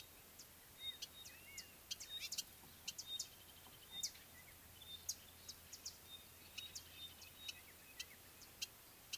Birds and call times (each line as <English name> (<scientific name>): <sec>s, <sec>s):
Pygmy Batis (Batis perkeo): 2.2s, 3.2s, 7.4s
Brubru (Nilaus afer): 3.5s